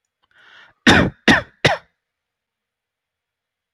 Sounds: Cough